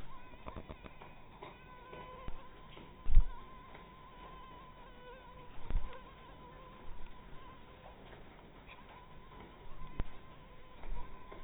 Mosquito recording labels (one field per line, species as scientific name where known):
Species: mosquito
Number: one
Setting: cup